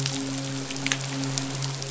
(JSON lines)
{"label": "biophony, midshipman", "recorder": "SoundTrap 500"}